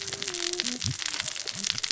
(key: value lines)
label: biophony, cascading saw
recorder: SoundTrap 600 or HydroMoth